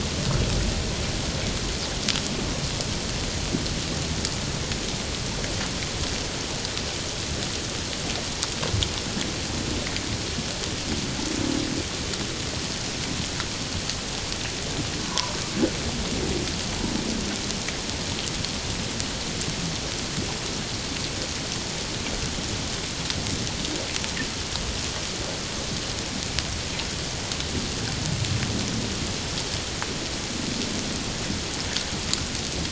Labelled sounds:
15.1	15.4	humpback whale, 0.91 to 1.2 kHz

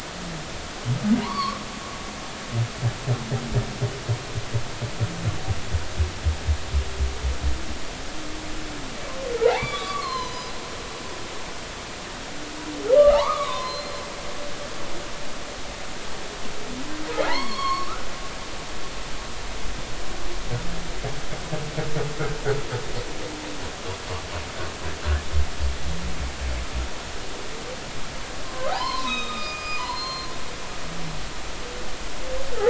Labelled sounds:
1.2	1.6	humpback whale, 0.80 to 4.7 kHz
9.4	10.5	humpback whale, 0.80 to 6.0 kHz
11.0	11.5	humpback whale, 3.9 to 4.4 kHz
13.0	13.9	humpback whale, 0.80 to 4.2 kHz
17.3	18.0	humpback whale, 0.80 to 4.5 kHz
28.4	30.8	humpback whale, 0.80 to 5.1 kHz

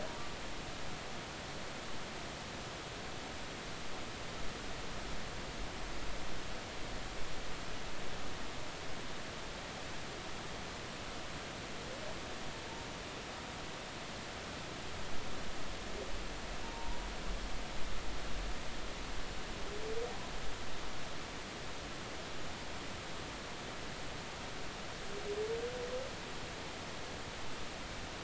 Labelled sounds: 16.6	17.0	humpback whale, 0.86 to 1.0 kHz

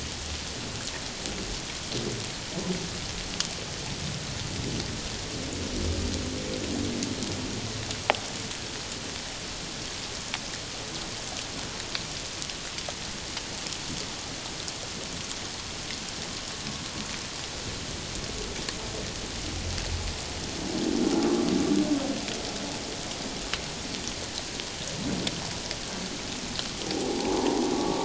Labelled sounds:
27.2	28.0	humpback whale, 0.78 to 1.2 kHz

